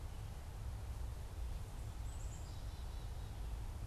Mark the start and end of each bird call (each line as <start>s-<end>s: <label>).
1.8s-3.6s: Black-capped Chickadee (Poecile atricapillus)